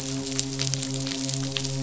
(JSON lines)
{"label": "biophony, midshipman", "recorder": "SoundTrap 500"}